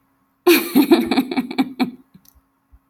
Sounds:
Laughter